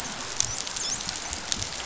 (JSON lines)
{"label": "biophony, dolphin", "recorder": "SoundTrap 500"}